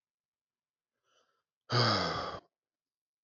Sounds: Sigh